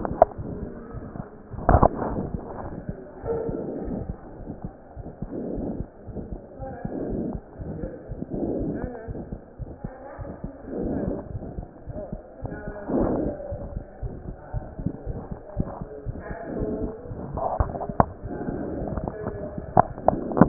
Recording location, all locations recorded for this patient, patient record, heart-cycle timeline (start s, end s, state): aortic valve (AV)
aortic valve (AV)+pulmonary valve (PV)+tricuspid valve (TV)+mitral valve (MV)
#Age: Child
#Sex: Male
#Height: 87.0 cm
#Weight: 11.2 kg
#Pregnancy status: False
#Murmur: Present
#Murmur locations: aortic valve (AV)+mitral valve (MV)+pulmonary valve (PV)+tricuspid valve (TV)
#Most audible location: pulmonary valve (PV)
#Systolic murmur timing: Early-systolic
#Systolic murmur shape: Plateau
#Systolic murmur grading: II/VI
#Systolic murmur pitch: Low
#Systolic murmur quality: Harsh
#Diastolic murmur timing: nan
#Diastolic murmur shape: nan
#Diastolic murmur grading: nan
#Diastolic murmur pitch: nan
#Diastolic murmur quality: nan
#Outcome: Abnormal
#Campaign: 2015 screening campaign
0.00	9.06	unannotated
9.06	9.16	S1
9.16	9.28	systole
9.28	9.38	S2
9.38	9.59	diastole
9.59	9.70	S1
9.70	9.83	systole
9.83	9.92	S2
9.92	10.19	diastole
10.19	10.26	S1
10.26	10.41	systole
10.41	10.52	S2
10.52	10.81	diastole
10.81	10.93	S1
10.93	11.05	systole
11.05	11.16	S2
11.16	11.31	diastole
11.31	11.40	S1
11.40	11.55	systole
11.55	11.64	S2
11.64	11.87	diastole
11.87	11.95	S1
11.95	12.12	systole
12.12	12.22	S2
12.22	12.42	diastole
12.42	12.54	S1
12.54	12.65	systole
12.65	12.74	S2
12.74	13.49	unannotated
13.49	13.59	S1
13.59	13.74	systole
13.74	13.82	S2
13.82	14.01	diastole
14.01	14.12	S1
14.12	14.25	systole
14.25	14.36	S2
14.36	14.52	diastole
14.52	14.66	S1
14.66	14.77	systole
14.77	14.89	S2
14.89	15.06	diastole
15.06	15.16	S1
15.16	15.30	systole
15.30	15.38	S2
15.38	15.55	diastole
15.55	15.68	S1
15.68	15.78	systole
15.78	15.86	S2
15.86	16.05	diastole
16.05	16.16	S1
16.16	16.28	systole
16.28	16.36	S2
16.36	16.54	diastole
16.54	20.48	unannotated